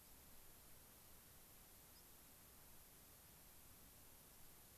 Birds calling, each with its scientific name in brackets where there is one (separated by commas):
White-crowned Sparrow (Zonotrichia leucophrys)